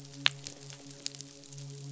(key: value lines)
label: biophony, midshipman
recorder: SoundTrap 500